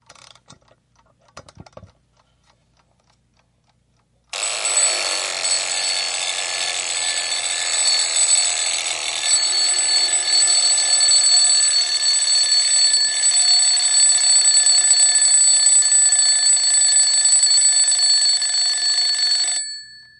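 The continuous sound of an alarm clock being wound up, changing at the end. 0.0 - 4.3
A loud alarm clock sounds repeatedly and then stops. 4.3 - 19.6
A distant, quiet echo follows an alarm clock. 19.6 - 20.2

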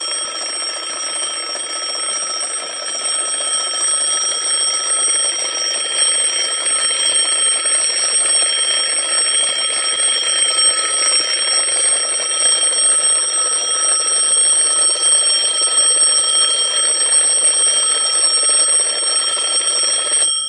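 An analog alarm clock rings rhythmically, starting softly and gradually growing louder. 0.0 - 20.5

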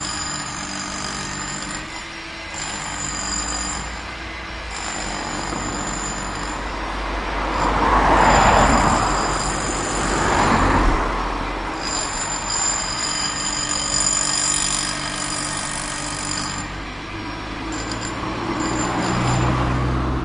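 A jackhammer in action. 0.0 - 20.2
A car passes by. 7.4 - 9.3
A car passes by. 10.1 - 11.4
A car passes by. 18.6 - 20.2

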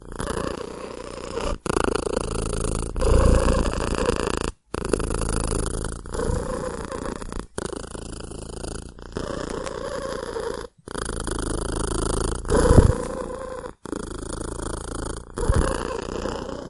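A kitten purring and squeaking intermittently in a quiet indoor setting. 0.0 - 16.7

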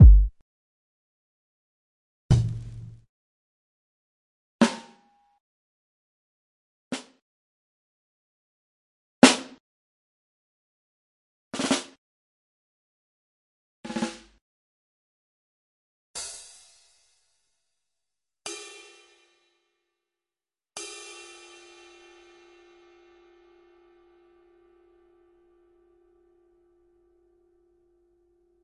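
A single, deep, low-pitched kick drum sound. 0.0 - 0.3
A single, deep, low-pitched kick drum sound. 2.2 - 3.0
A single, deep, low-pitched floor tom drum sound. 4.5 - 4.9
A single, deep, low-pitched floor tom drum sound. 6.9 - 7.1
A singular, deep, medium-pitched rack tom drum sound. 9.1 - 9.6
A repetitive, deep, medium-pitched rack-tom drum sound. 11.5 - 11.9
A repetitive, deep, medium-pitched rack-tom drum sound. 13.8 - 14.3
A singular, deep, high-pitched snare drum sound. 16.1 - 16.5
A singular, deep, high-pitched snare drum sound. 18.4 - 18.9
A singular, deep, high-pitched snare drum sound fading out. 20.7 - 22.4

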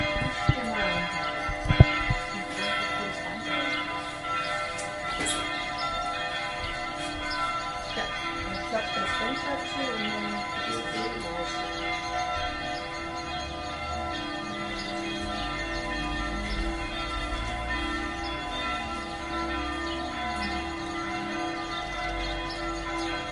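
A church bell chimes. 0.0 - 23.3

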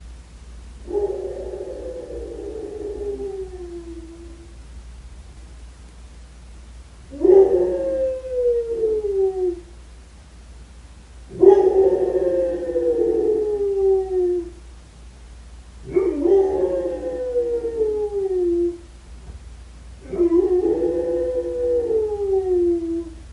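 A dog howls in the distance. 0.8 - 4.8
A dog howls. 7.2 - 9.6
A dog howls. 11.3 - 14.6
A dog howls. 15.9 - 18.8
A dog howls. 20.0 - 23.3

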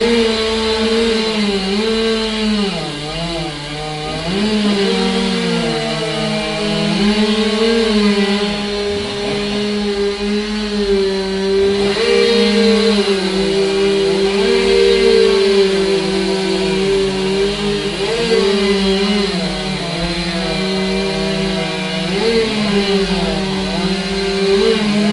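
A chainsaw repeatedly whirs as it cuts wood in the forest. 0.0 - 25.1

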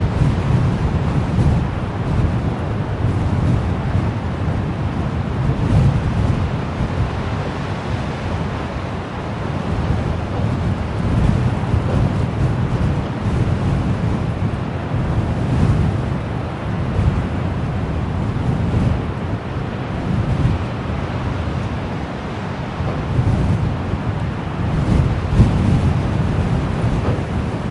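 Wind creating pressure in a small metallic space. 0.0 - 27.7

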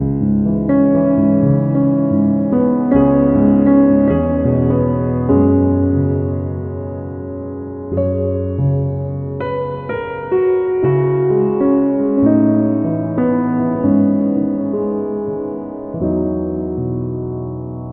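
An electronic piano is playing. 0.0 - 17.8

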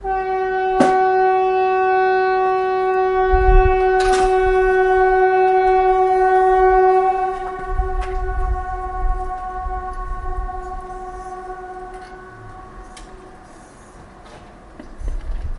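A siren sounds in the distance. 0.0 - 7.4
A thump is heard. 0.6 - 1.1
An alarm echoes in the distance. 7.4 - 11.6

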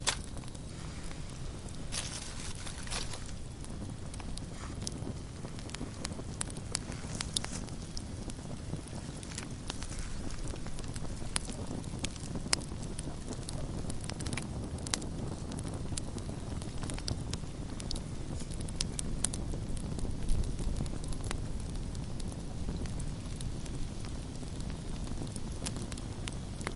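Wet sludge mixed with the crackling of firewood. 0.0 - 26.8
Constant whooshing sound of fire. 0.0 - 26.8

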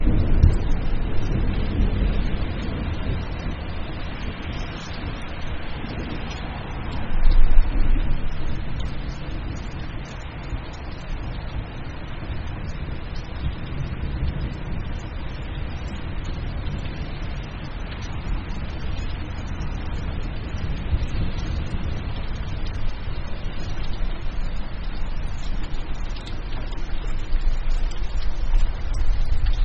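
Rain falling quietly on the ground in an irregular pattern from a distance. 0.0 - 29.6
Thunder rumbles quietly and irregularly in the distance. 0.0 - 29.6

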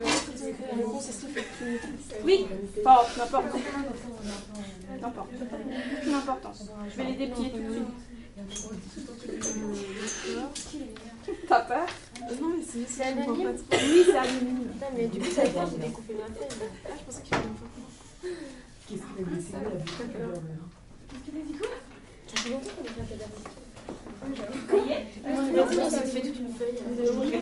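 A woman is speaking French. 0.0 - 27.4
A person coughing. 13.7 - 14.6

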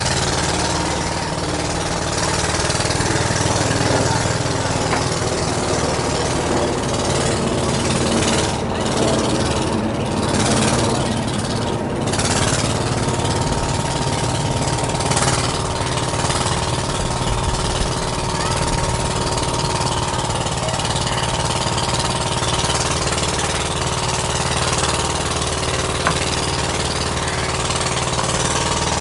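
A boat engine humming steadily with a deep, chugging rhythm. 0.0 - 29.0
Soft, indistinct chatter is heard occasionally in the distance. 0.0 - 29.0

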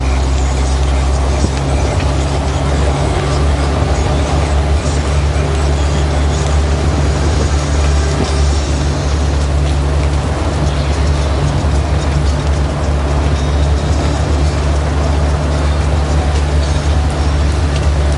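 A loud car driving by. 0.0 - 18.2
Music is playing in the background. 9.1 - 18.2

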